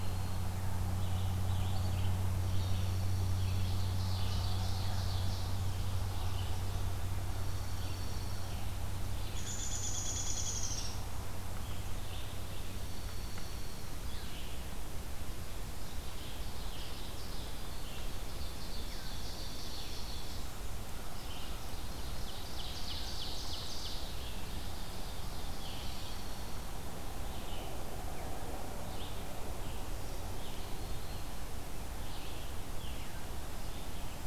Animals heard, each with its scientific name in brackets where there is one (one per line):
Black-throated Green Warbler (Setophaga virens)
Red-eyed Vireo (Vireo olivaceus)
Dark-eyed Junco (Junco hyemalis)
Ovenbird (Seiurus aurocapilla)
Downy Woodpecker (Dryobates pubescens)